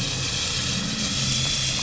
{"label": "anthrophony, boat engine", "recorder": "SoundTrap 500"}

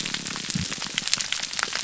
{"label": "biophony, grouper groan", "recorder": "SoundTrap 300"}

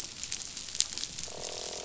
{"label": "biophony, croak", "recorder": "SoundTrap 500"}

